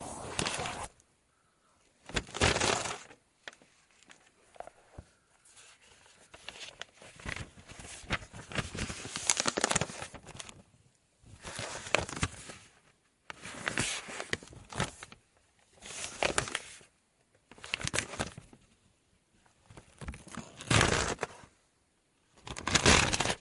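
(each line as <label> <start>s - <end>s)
Paper being moved. 0.0s - 1.0s
Paper ripping suddenly. 2.0s - 5.5s
Paper being folded. 6.5s - 10.7s
Paper being folded and moved repeatedly. 11.4s - 23.4s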